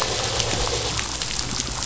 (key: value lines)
label: anthrophony, boat engine
recorder: SoundTrap 500